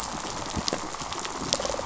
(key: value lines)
label: biophony, rattle response
recorder: SoundTrap 500